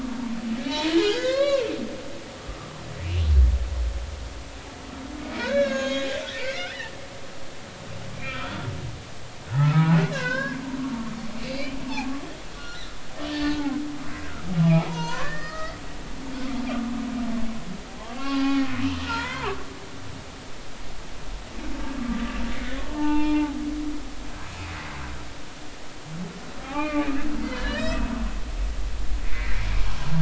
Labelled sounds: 0.6	1.8	humpback whale, 0.86 to 5.3 kHz
5.2	6.7	humpback whale, 1.0 to 6.8 kHz
8.2	8.7	humpback whale, 1.2 to 3.6 kHz
9.1	10.6	humpback whale, 0.80 to 5.4 kHz
11.3	12.2	humpback whale, 0.80 to 5.0 kHz
12.5	12.8	humpback whale, 1.3 to 1.5 kHz
13.3	13.7	humpback whale, 1.3 to 1.9 kHz
14.6	15.8	humpback whale, 0.80 to 6.3 kHz
18.1	19.6	humpback whale, 0.80 to 5.0 kHz
23.0	23.5	humpback whale, 0.83 to 3.7 kHz
26.6	27.1	humpback whale, 0.80 to 2.5 kHz
27.6	28.1	humpback whale, 1.6 to 2.7 kHz
29.3	29.9	humpback whale, 1.8 to 2.4 kHz

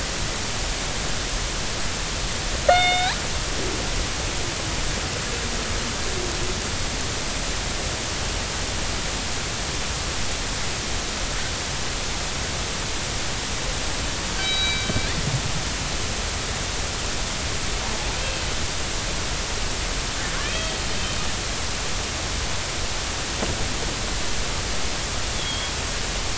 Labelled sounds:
2.6	3.2	killer whale, northern resident, G clan, 1.4 to 4.4 kHz
14.4	14.9	killer whale, northern resident, G clan, 1.5 to 4.7 kHz
20.4	21.2	killer whale, northern resident, G clan, 2.3 to 3.3 kHz
25.4	25.7	killer whale, northern resident, G clan, 3.2 to 3.6 kHz

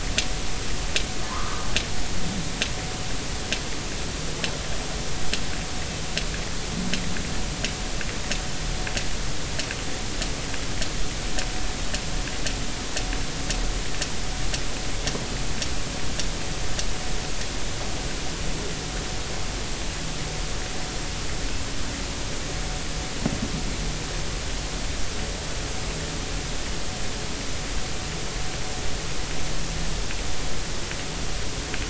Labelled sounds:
1.2	1.7	humpback whale, 0.83 to 1.3 kHz

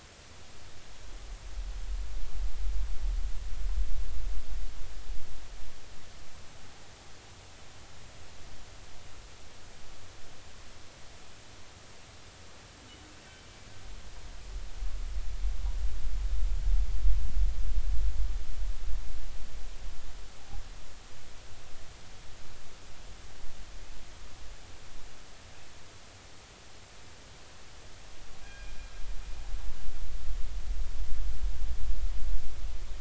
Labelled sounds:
28.4	28.8	killer whale, northern resident, G clan, call N24ii, 1.5 to 2.5 kHz

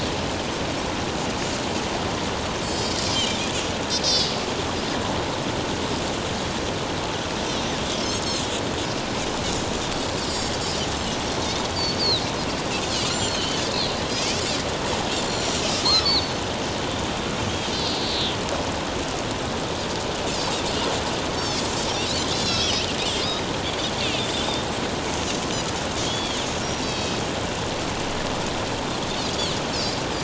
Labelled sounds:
2.6	3.4	Pacific white-sided dolphin, 3.4 to 7.8 kHz
3.9	4.3	Pacific white-sided dolphin, 3.8 to 6.2 kHz
10.2	11.2	Pacific white-sided dolphin, 4.6 to 8.0 kHz
11.7	12.2	Pacific white-sided dolphin, 3.6 to 4.9 kHz
13.1	13.6	Pacific white-sided dolphin, 2.9 to 4.4 kHz
15.1	16.4	Pacific white-sided dolphin, 3.6 to 7.4 kHz
17.7	18.3	Pacific white-sided dolphin, 3.3 to 5.2 kHz
22.3	22.9	Pacific white-sided dolphin, 2.5 to 7.0 kHz
24.2	24.7	Pacific white-sided dolphin, 3.3 to 3.8 kHz
26.0	27.2	Pacific white-sided dolphin, 2.5 to 6.0 kHz
29.3	29.5	Pacific white-sided dolphin, 4.0 to 4.8 kHz

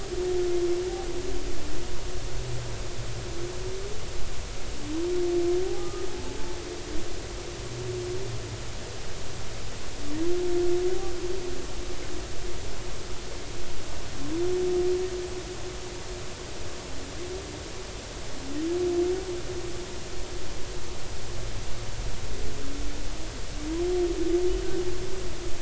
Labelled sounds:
5.6	6.4	humpback whale, 0.80 to 1.3 kHz

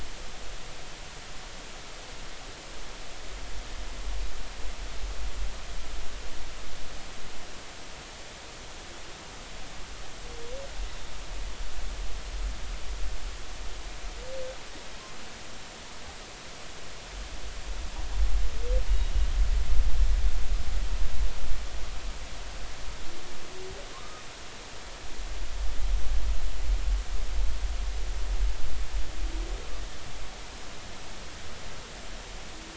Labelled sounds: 23.9	24.2	humpback whale, 1.0 to 1.3 kHz

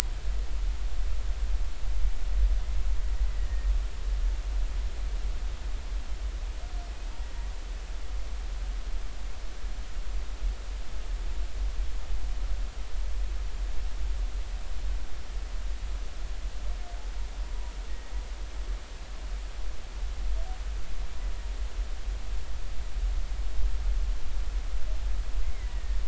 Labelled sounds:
3.3	3.7	humpback whale, 1.8 to 2.0 kHz
25.4	26.0	humpback whale, 1.8 to 2.2 kHz

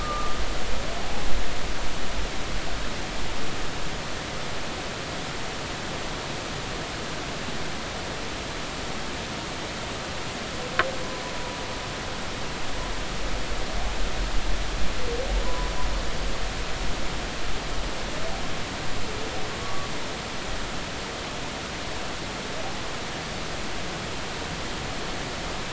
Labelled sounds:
0.0	0.4	humpback whale, 1.1 to 1.3 kHz
15.4	15.7	humpback whale, 0.93 to 1.1 kHz
19.6	19.9	humpback whale, 1.1 to 1.2 kHz

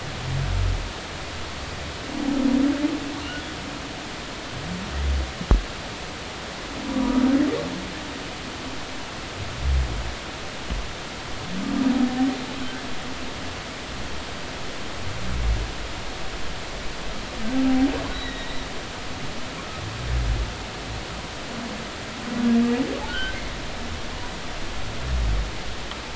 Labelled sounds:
6.9	7.2	humpback whale, 1.1 to 1.3 kHz
18.1	18.6	humpback whale, 1.8 to 4.0 kHz
23.1	23.4	humpback whale, 1.4 to 3.4 kHz

